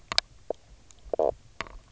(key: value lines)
label: biophony, knock croak
recorder: SoundTrap 300